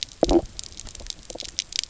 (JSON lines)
{"label": "biophony, stridulation", "recorder": "SoundTrap 300"}